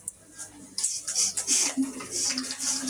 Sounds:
Sniff